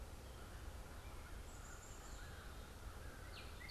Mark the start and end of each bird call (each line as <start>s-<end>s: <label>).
0.0s-3.7s: American Crow (Corvus brachyrhynchos)
1.4s-3.7s: Black-capped Chickadee (Poecile atricapillus)
3.0s-3.7s: Northern Cardinal (Cardinalis cardinalis)